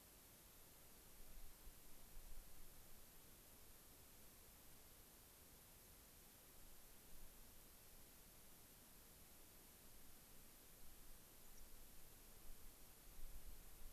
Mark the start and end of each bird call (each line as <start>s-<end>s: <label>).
11.4s-11.7s: Dark-eyed Junco (Junco hyemalis)